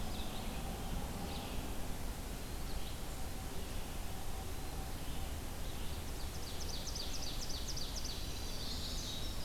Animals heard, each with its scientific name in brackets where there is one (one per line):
Chestnut-sided Warbler (Setophaga pensylvanica)
Ovenbird (Seiurus aurocapilla)
Red-eyed Vireo (Vireo olivaceus)
Winter Wren (Troglodytes hiemalis)